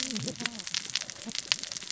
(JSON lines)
{"label": "biophony, cascading saw", "recorder": "SoundTrap 600 or HydroMoth"}